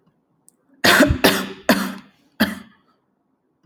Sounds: Cough